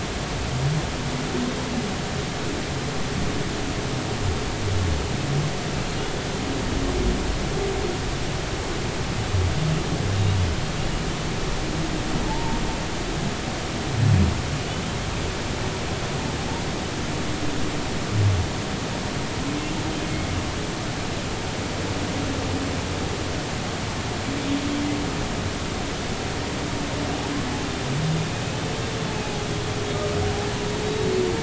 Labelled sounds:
12.3	12.6	humpback whale, 0.80 to 0.99 kHz
30.8	31.1	humpback whale, 3.8 to 3.9 kHz

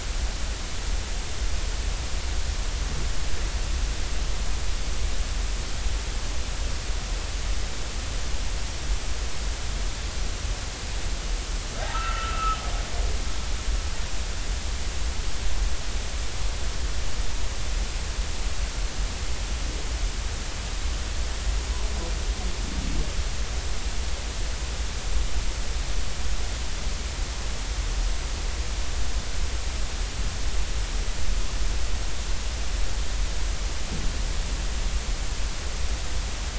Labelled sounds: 11.9	12.6	humpback whale, 1.2 to 2.8 kHz

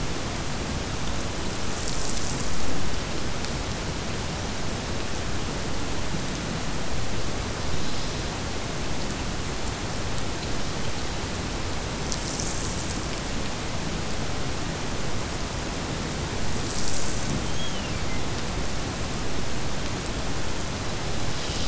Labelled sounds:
17.4	18.2	killer whale, Bigg's (transient), Gulf of Alaska transient, 1.9 to 3.5 kHz

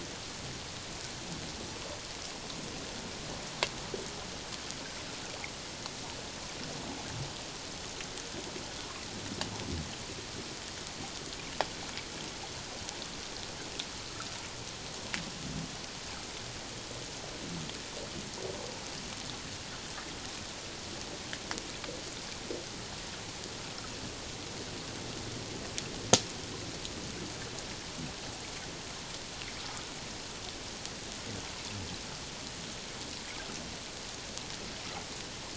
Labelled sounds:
29.6	29.9	water noise, 1.2 to 1.4 kHz

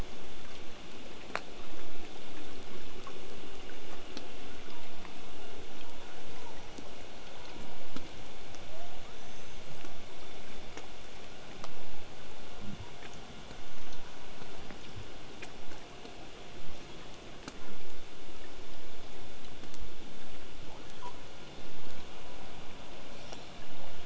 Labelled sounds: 8.6	10.2	killer whale, southern resident, L pod, call S02iii, 0.43 to 8.0 kHz
23.2	23.5	killer whale, southern resident, 0.31 to 6.2 kHz

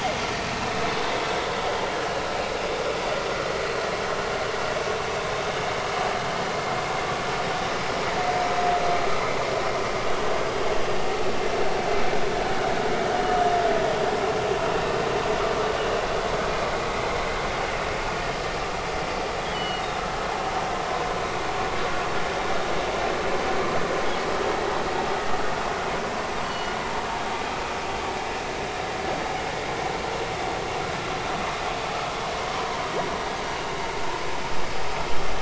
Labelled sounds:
19.5	19.8	humpback whale, 2.8 to 4.6 kHz
26.4	26.8	humpback whale, 2.8 to 4.5 kHz
32.6	32.8	humpback whale, 0.90 to 1.1 kHz

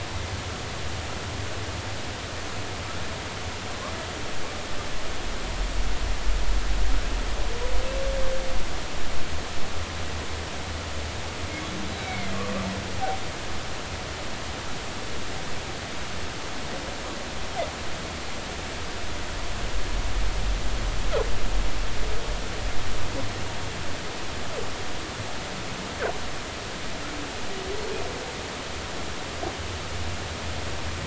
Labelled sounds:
12.0	12.3	humpback whale, 2.0 to 2.4 kHz

